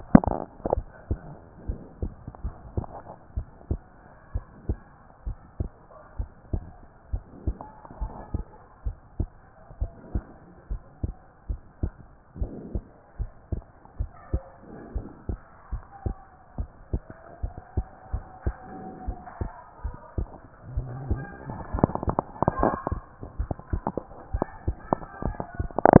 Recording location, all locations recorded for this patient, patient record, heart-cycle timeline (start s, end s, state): pulmonary valve (PV)
pulmonary valve (PV)+tricuspid valve (TV)+mitral valve (MV)
#Age: Child
#Sex: Female
#Height: 142.0 cm
#Weight: 34.6 kg
#Pregnancy status: False
#Murmur: Absent
#Murmur locations: nan
#Most audible location: nan
#Systolic murmur timing: nan
#Systolic murmur shape: nan
#Systolic murmur grading: nan
#Systolic murmur pitch: nan
#Systolic murmur quality: nan
#Diastolic murmur timing: nan
#Diastolic murmur shape: nan
#Diastolic murmur grading: nan
#Diastolic murmur pitch: nan
#Diastolic murmur quality: nan
#Outcome: Abnormal
#Campaign: 2014 screening campaign
0.00	1.66	unannotated
1.66	1.78	S1
1.78	2.00	systole
2.00	2.12	S2
2.12	2.44	diastole
2.44	2.54	S1
2.54	2.76	systole
2.76	2.86	S2
2.86	3.36	diastole
3.36	3.48	S1
3.48	3.70	systole
3.70	3.80	S2
3.80	4.34	diastole
4.34	4.46	S1
4.46	4.68	systole
4.68	4.78	S2
4.78	5.26	diastole
5.26	5.38	S1
5.38	5.58	systole
5.58	5.70	S2
5.70	6.18	diastole
6.18	6.30	S1
6.30	6.52	systole
6.52	6.64	S2
6.64	7.12	diastole
7.12	7.24	S1
7.24	7.46	systole
7.46	7.56	S2
7.56	8.00	diastole
8.00	8.12	S1
8.12	8.32	systole
8.32	8.44	S2
8.44	8.84	diastole
8.84	8.96	S1
8.96	9.18	systole
9.18	9.30	S2
9.30	9.80	diastole
9.80	9.92	S1
9.92	10.14	systole
10.14	10.24	S2
10.24	10.70	diastole
10.70	10.82	S1
10.82	11.02	systole
11.02	11.14	S2
11.14	11.48	diastole
11.48	11.60	S1
11.60	11.82	systole
11.82	11.92	S2
11.92	12.40	diastole
12.40	12.52	S1
12.52	12.72	systole
12.72	12.84	S2
12.84	13.20	diastole
13.20	13.30	S1
13.30	13.50	systole
13.50	13.62	S2
13.62	13.98	diastole
13.98	14.10	S1
14.10	14.32	systole
14.32	14.42	S2
14.42	14.94	diastole
14.94	15.06	S1
15.06	15.28	systole
15.28	15.38	S2
15.38	15.72	diastole
15.72	15.84	S1
15.84	16.04	systole
16.04	16.16	S2
16.16	16.58	diastole
16.58	16.70	S1
16.70	16.92	systole
16.92	17.02	S2
17.02	17.42	diastole
17.42	17.54	S1
17.54	17.76	systole
17.76	17.86	S2
17.86	18.12	diastole
18.12	18.24	S1
18.24	18.44	systole
18.44	18.56	S2
18.56	19.06	diastole
19.06	19.18	S1
19.18	19.40	systole
19.40	19.50	S2
19.50	19.84	diastole
19.84	19.96	S1
19.96	20.16	systole
20.16	20.28	S2
20.28	20.74	diastole
20.74	26.00	unannotated